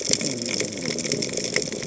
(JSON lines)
{"label": "biophony", "recorder": "HydroMoth"}